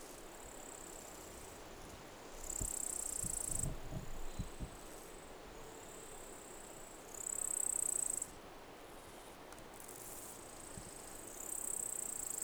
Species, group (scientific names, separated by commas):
Psophus stridulus, Orthoptera